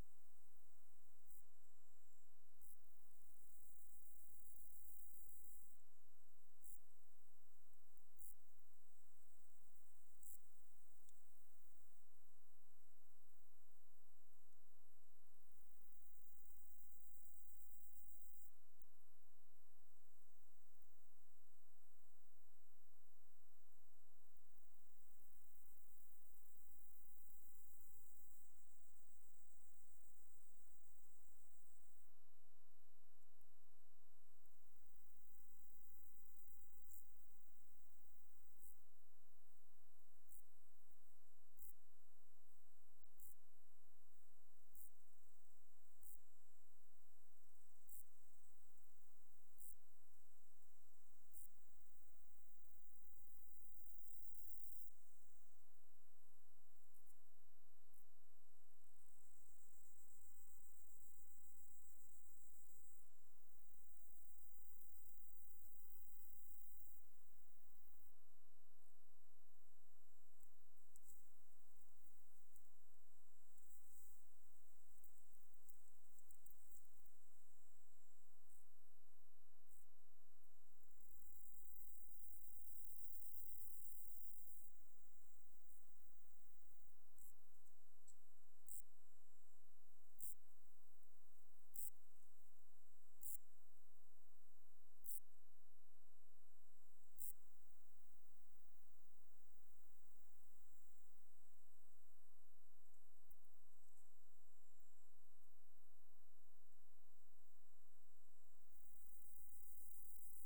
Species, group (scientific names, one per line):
Chorthippus brunneus
Orthoptera